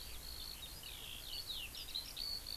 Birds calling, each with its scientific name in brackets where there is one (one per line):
Eurasian Skylark (Alauda arvensis)